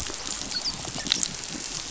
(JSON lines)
{"label": "biophony, dolphin", "recorder": "SoundTrap 500"}
{"label": "biophony", "recorder": "SoundTrap 500"}